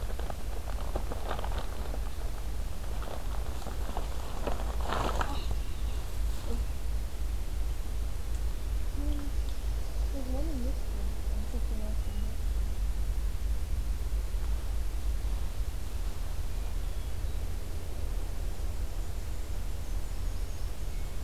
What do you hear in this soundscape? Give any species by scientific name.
Catharus guttatus, Mniotilta varia